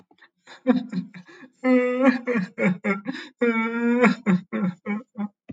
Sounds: Sigh